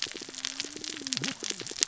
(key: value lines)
label: biophony, cascading saw
recorder: SoundTrap 600 or HydroMoth